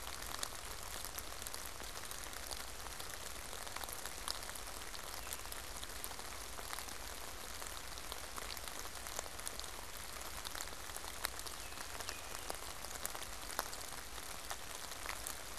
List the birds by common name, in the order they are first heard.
Baltimore Oriole